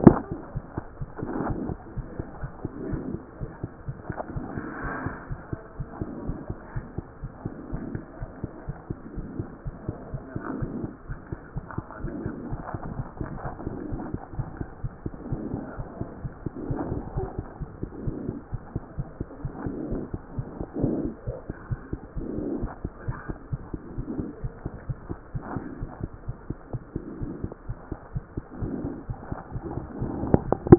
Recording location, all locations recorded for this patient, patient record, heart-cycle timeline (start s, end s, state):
aortic valve (AV)
aortic valve (AV)+mitral valve (MV)
#Age: Child
#Sex: Male
#Height: 77.0 cm
#Weight: 10.2 kg
#Pregnancy status: False
#Murmur: Absent
#Murmur locations: nan
#Most audible location: nan
#Systolic murmur timing: nan
#Systolic murmur shape: nan
#Systolic murmur grading: nan
#Systolic murmur pitch: nan
#Systolic murmur quality: nan
#Diastolic murmur timing: nan
#Diastolic murmur shape: nan
#Diastolic murmur grading: nan
#Diastolic murmur pitch: nan
#Diastolic murmur quality: nan
#Outcome: Normal
#Campaign: 2014 screening campaign
0.00	22.58	unannotated
22.58	22.70	S1
22.70	22.82	systole
22.82	22.90	S2
22.90	23.06	diastole
23.06	23.16	S1
23.16	23.28	systole
23.28	23.36	S2
23.36	23.52	diastole
23.52	23.62	S1
23.62	23.72	systole
23.72	23.80	S2
23.80	23.98	diastole
23.98	24.06	S1
24.06	24.18	systole
24.18	24.28	S2
24.28	24.42	diastole
24.42	24.52	S1
24.52	24.64	systole
24.64	24.72	S2
24.72	24.88	diastole
24.88	24.98	S1
24.98	25.08	systole
25.08	25.18	S2
25.18	25.34	diastole
25.34	25.44	S1
25.44	25.54	systole
25.54	25.64	S2
25.64	25.80	diastole
25.80	25.90	S1
25.90	26.02	systole
26.02	26.10	S2
26.10	26.28	diastole
26.28	26.36	S1
26.36	26.50	systole
26.50	26.58	S2
26.58	26.76	diastole
26.76	26.82	S1
26.82	26.94	systole
26.94	27.02	S2
27.02	27.20	diastole
27.20	27.32	S1
27.32	27.42	systole
27.42	27.52	S2
27.52	27.68	diastole
27.68	27.78	S1
27.78	27.90	systole
27.90	27.98	S2
27.98	28.16	diastole
28.16	28.24	S1
28.24	28.36	systole
28.36	28.44	S2
28.44	28.62	diastole
28.62	28.74	S1
28.74	28.84	systole
28.84	28.94	S2
28.94	29.10	diastole
29.10	29.18	S1
29.18	29.30	systole
29.30	29.38	S2
29.38	29.54	diastole
29.54	29.62	S1
29.62	29.74	systole
29.74	29.84	S2
29.84	30.00	diastole
30.00	30.78	unannotated